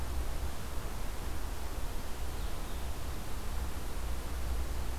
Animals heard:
forest ambience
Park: Marsh-Billings-Rockefeller National Historical Park